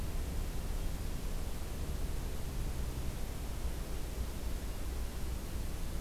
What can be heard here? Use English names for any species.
forest ambience